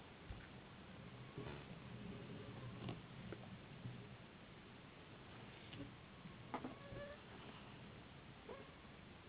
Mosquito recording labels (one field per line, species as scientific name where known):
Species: Anopheles gambiae s.s.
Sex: female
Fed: unfed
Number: one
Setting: insect culture